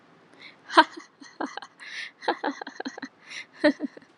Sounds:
Laughter